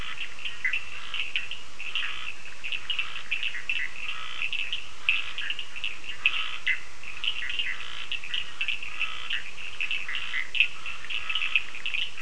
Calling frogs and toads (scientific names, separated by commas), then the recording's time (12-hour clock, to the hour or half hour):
Boana bischoffi, Scinax perereca, Sphaenorhynchus surdus
8:30pm